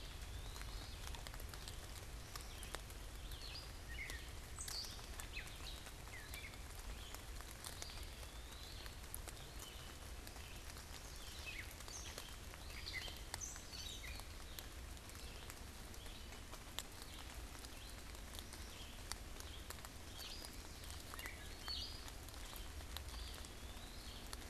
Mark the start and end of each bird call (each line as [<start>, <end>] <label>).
[0.00, 0.95] Eastern Wood-Pewee (Contopus virens)
[0.00, 24.50] Red-eyed Vireo (Vireo olivaceus)
[2.45, 6.65] Gray Catbird (Dumetella carolinensis)
[7.75, 9.05] Eastern Wood-Pewee (Contopus virens)
[10.95, 14.45] Gray Catbird (Dumetella carolinensis)
[19.75, 22.25] Gray Catbird (Dumetella carolinensis)
[22.85, 24.35] Eastern Wood-Pewee (Contopus virens)